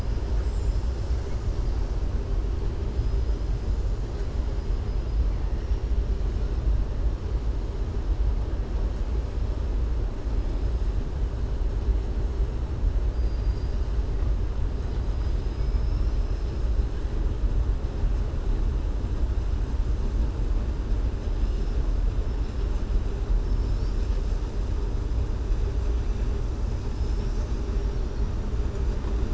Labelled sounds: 13.1	13.9	killer whale, southern resident, 4.7 to 5.7 kHz
15.1	16.6	killer whale, southern resident, 4.0 to 6.0 kHz
23.4	24.2	killer whale, southern resident, 4.0 to 6.8 kHz
26.8	27.6	killer whale, southern resident, 4.8 to 7.2 kHz

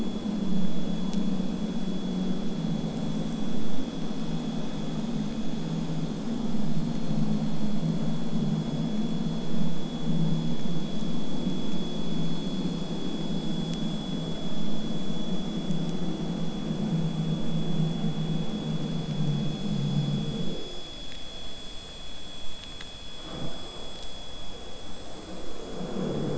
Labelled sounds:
21.4	26.3	vessel noise, 0 to 8.0 kHz

